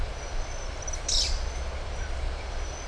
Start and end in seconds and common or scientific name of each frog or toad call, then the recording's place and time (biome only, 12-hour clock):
none
Atlantic Forest, 5:30pm